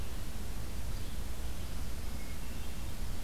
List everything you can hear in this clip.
Yellow-bellied Flycatcher, Hermit Thrush